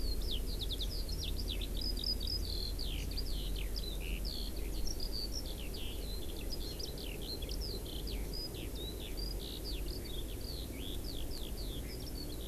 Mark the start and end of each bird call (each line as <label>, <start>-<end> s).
Eurasian Skylark (Alauda arvensis), 0.0-12.5 s
Hawaii Amakihi (Chlorodrepanis virens), 2.9-3.0 s